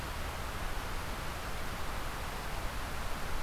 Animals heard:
forest ambience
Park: Marsh-Billings-Rockefeller National Historical Park